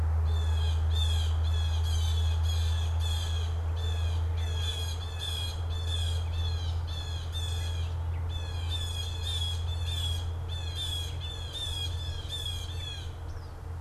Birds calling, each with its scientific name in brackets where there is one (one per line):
Blue Jay (Cyanocitta cristata)